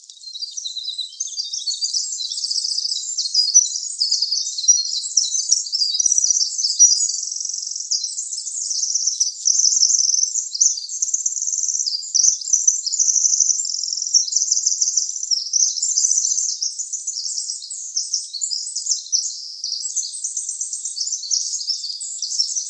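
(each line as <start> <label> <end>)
0.0 A group of birds loudly chirping with echoing sounds. 22.7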